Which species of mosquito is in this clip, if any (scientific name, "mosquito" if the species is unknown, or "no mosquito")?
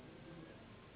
Anopheles gambiae s.s.